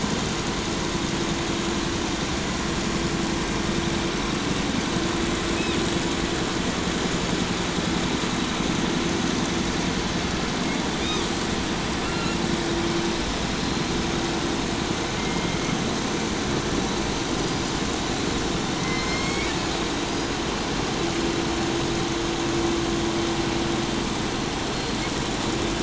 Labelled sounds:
5.4	5.9	killer whale, 1.1 to 5.7 kHz
10.6	11.3	killer whale, 0.71 to 6.6 kHz
11.9	12.5	killer whale, 0.64 to 7.0 kHz
13.5	14.0	killer whale, 3.6 to 4.3 kHz
14.9	15.9	killer whale, southern resident, J pod, call S01, 1.2 to 6.4 kHz
16.2	18.3	killer whale, 3.6 to 5.3 kHz
18.6	19.9	killer whale, southern resident, J pod, call S01, 0.51 to 7.8 kHz
20.0	20.6	killer whale, 4.5 to 5.4 kHz
24.1	25.5	killer whale, 3.6 to 4.7 kHz

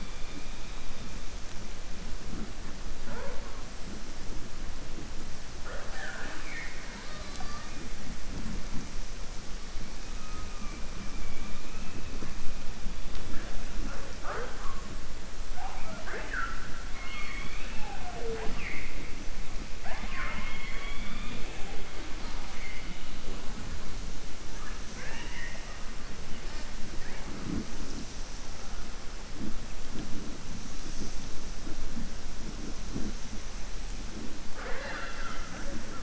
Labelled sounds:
5.5	7.7	killer whale, southern resident, 0.51 to 7.5 kHz
24.9	25.8	killer whale, southern resident, 0.54 to 3.0 kHz
34.4	35.8	killer whale, southern resident, 0.43 to 4.8 kHz

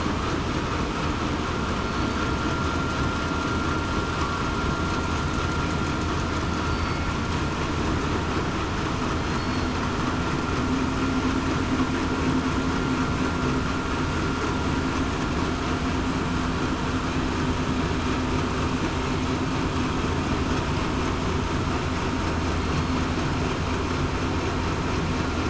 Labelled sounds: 6.7	7.0	killer whale, southern resident, 4.5 to 4.6 kHz

